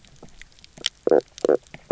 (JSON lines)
{"label": "biophony, knock croak", "recorder": "SoundTrap 300"}